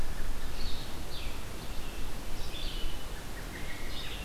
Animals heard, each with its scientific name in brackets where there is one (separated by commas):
Blue-headed Vireo (Vireo solitarius), American Robin (Turdus migratorius), Red-eyed Vireo (Vireo olivaceus)